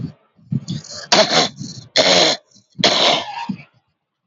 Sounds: Throat clearing